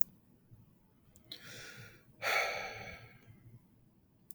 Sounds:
Sigh